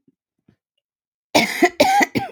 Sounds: Cough